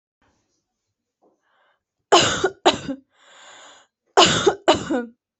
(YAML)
expert_labels:
- quality: ok
  cough_type: dry
  dyspnea: false
  wheezing: false
  stridor: false
  choking: false
  congestion: false
  nothing: true
  diagnosis: healthy cough
  severity: pseudocough/healthy cough
age: 25
gender: female
respiratory_condition: false
fever_muscle_pain: true
status: symptomatic